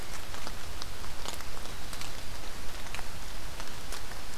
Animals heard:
forest ambience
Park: Marsh-Billings-Rockefeller National Historical Park